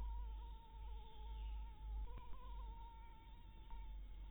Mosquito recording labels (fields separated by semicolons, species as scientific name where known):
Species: Anopheles maculatus; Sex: female; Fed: blood-fed; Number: one; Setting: cup